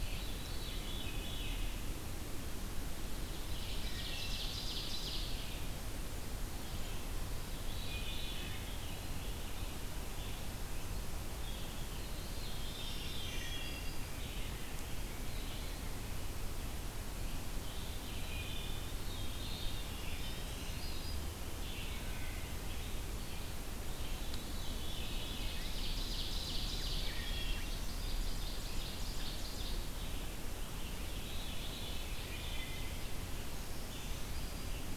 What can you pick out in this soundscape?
Veery, Red-eyed Vireo, Ovenbird, Eastern Wood-Pewee, Black-throated Green Warbler, Wood Thrush